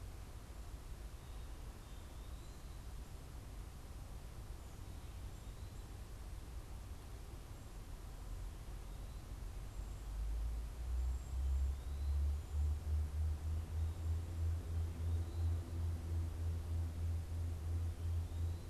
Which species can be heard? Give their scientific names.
Bombycilla cedrorum